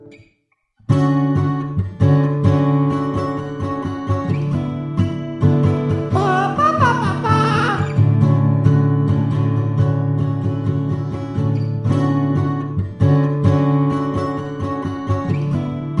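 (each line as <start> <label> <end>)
0.0 A guitar string squeaks. 0.5
0.9 A guitar is playing a melodic sound. 16.0
6.2 A person is singing nonsensical words. 8.0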